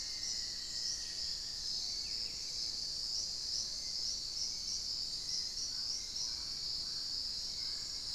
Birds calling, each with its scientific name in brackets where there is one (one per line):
Black-faced Antthrush (Formicarius analis)
Dusky-throated Antshrike (Thamnomanes ardesiacus)
Thrush-like Wren (Campylorhynchus turdinus)
Hauxwell's Thrush (Turdus hauxwelli)
Mealy Parrot (Amazona farinosa)